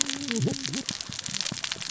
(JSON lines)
{"label": "biophony, cascading saw", "recorder": "SoundTrap 600 or HydroMoth"}